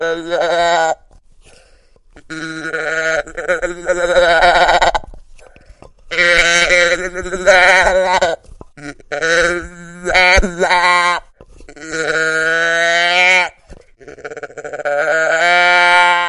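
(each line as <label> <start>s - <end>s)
Sheep baa in a funny, steady pattern with short pauses in between. 0.0s - 16.3s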